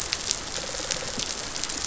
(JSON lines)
{"label": "biophony, rattle response", "recorder": "SoundTrap 500"}